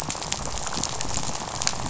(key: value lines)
label: biophony, rattle
recorder: SoundTrap 500